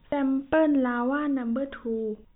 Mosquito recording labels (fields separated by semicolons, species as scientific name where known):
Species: no mosquito; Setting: cup